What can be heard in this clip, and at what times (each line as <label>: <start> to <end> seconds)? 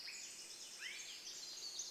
Pacific Wren song: 0 to 2 seconds
Swainson's Thrush call: 0 to 2 seconds
Swainson's Thrush song: 0 to 2 seconds